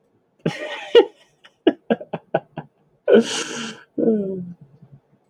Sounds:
Laughter